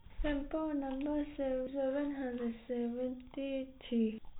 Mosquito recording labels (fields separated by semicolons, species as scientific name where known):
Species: no mosquito; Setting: cup